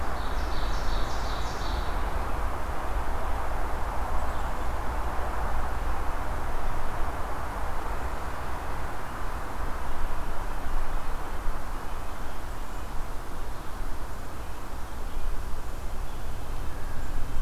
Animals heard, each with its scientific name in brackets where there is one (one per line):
Black-capped Chickadee (Poecile atricapillus)
Ovenbird (Seiurus aurocapilla)
Red-breasted Nuthatch (Sitta canadensis)